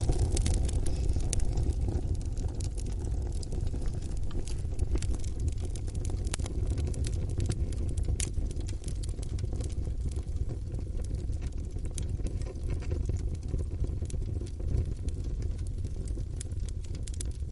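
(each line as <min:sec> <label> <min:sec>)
0:00.1 The gentle and soft crackling of a fireplace fills the indoor space with occasional popping sounds of burning wood. 0:17.5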